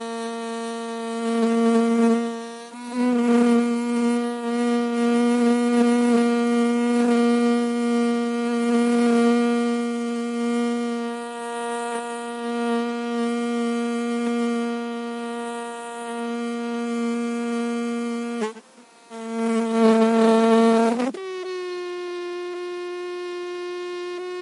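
A subtle, continuous hum of hovering insects produces a gentle buzzing layer reflecting the natural ambiance of a field. 0.0 - 24.4

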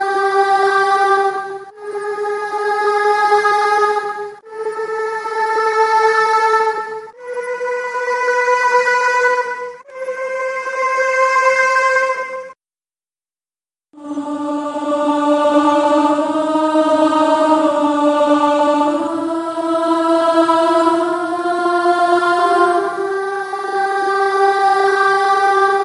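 A single note repeats with increasing pitch. 0.0 - 12.7
Choir singing notes with changing pitch. 13.9 - 25.8

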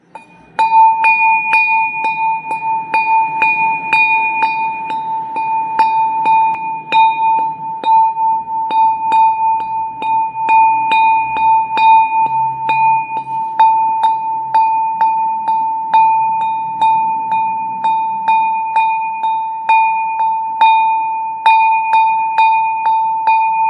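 A bell rings repeatedly. 0.4 - 23.7

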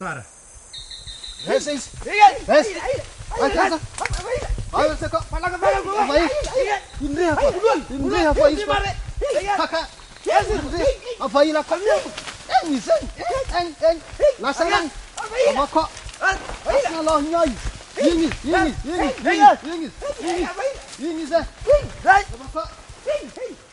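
Several people are walking hurriedly through the forest. 0.0 - 23.7

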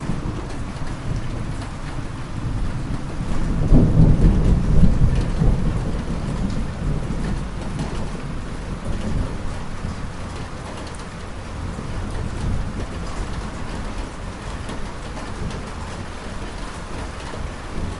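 Rain during a thunderstorm. 0.0 - 18.0
Thunderclap. 3.3 - 6.4

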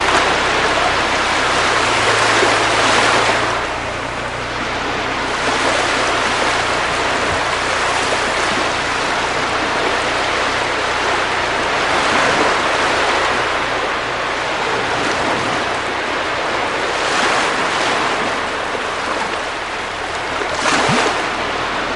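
Waves rolling repeatedly on the beach. 0.0 - 22.0

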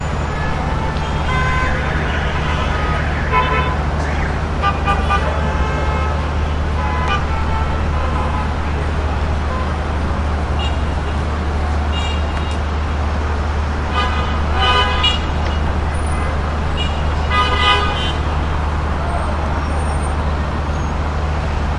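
City traffic noise. 0.1 - 21.8
A car horn sounds. 1.4 - 1.9
A car horn sounds. 3.3 - 3.8
A car horn sounds. 4.6 - 6.2
Multiple car horns honking. 6.9 - 7.8
A car horn sounds. 8.2 - 8.6
A car horn sounds. 10.5 - 11.0
A car horn sounds. 12.0 - 12.4
Multiple car horns honking. 13.9 - 15.3
Multiple car horns honking. 16.7 - 18.2

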